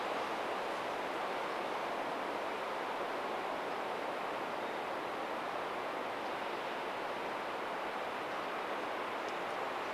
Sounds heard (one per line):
Hermit Thrush song